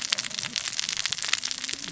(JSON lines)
{"label": "biophony, cascading saw", "recorder": "SoundTrap 600 or HydroMoth"}